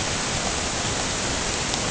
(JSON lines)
{"label": "ambient", "recorder": "HydroMoth"}